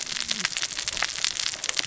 {"label": "biophony, cascading saw", "recorder": "SoundTrap 600 or HydroMoth"}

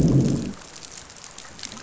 {"label": "biophony, growl", "recorder": "SoundTrap 500"}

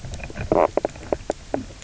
{"label": "biophony, knock croak", "recorder": "SoundTrap 300"}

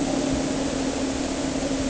{"label": "anthrophony, boat engine", "recorder": "HydroMoth"}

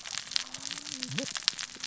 {"label": "biophony, cascading saw", "recorder": "SoundTrap 600 or HydroMoth"}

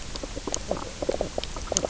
{"label": "biophony, knock croak", "recorder": "SoundTrap 300"}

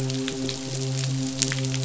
{"label": "biophony, midshipman", "recorder": "SoundTrap 500"}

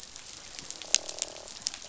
{"label": "biophony, croak", "recorder": "SoundTrap 500"}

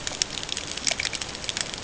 {"label": "ambient", "recorder": "HydroMoth"}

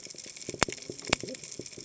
{"label": "biophony, cascading saw", "recorder": "HydroMoth"}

